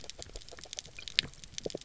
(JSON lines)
{"label": "biophony, grazing", "recorder": "SoundTrap 300"}